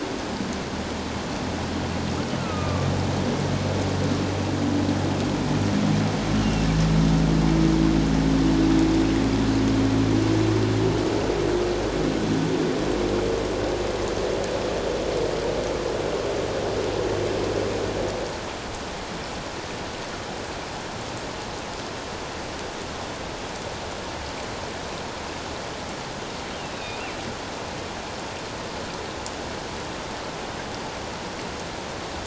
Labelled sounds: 2.4	2.9	killer whale, northern resident, 1.1 to 1.4 kHz
6.4	6.7	killer whale, northern resident, 2.6 to 2.9 kHz
26.7	27.0	killer whale, northern resident, 2.4 to 3.9 kHz

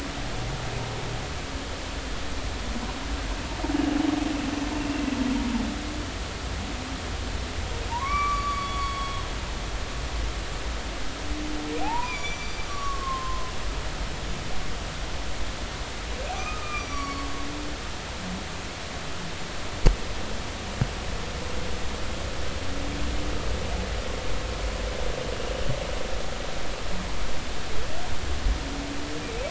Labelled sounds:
7.9	9.5	humpback whale, 0.86 to 5.9 kHz
11.8	13.5	humpback whale, 0.80 to 7.1 kHz
16.2	17.3	humpback whale, 1.0 to 5.9 kHz

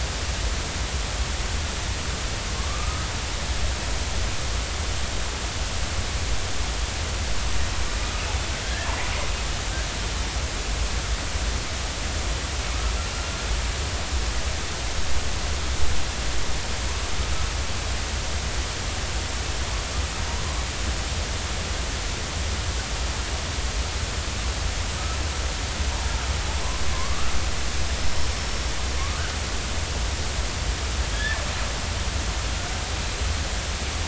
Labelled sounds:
2.6	3.1	killer whale, northern resident, 1.0 to 1.3 kHz
8.0	8.9	killer whale, northern resident, 1.5 to 2.9 kHz
26.9	28.7	killer whale, northern resident, 0.96 to 5.5 kHz
31.1	31.4	killer whale, northern resident, 1.6 to 1.8 kHz

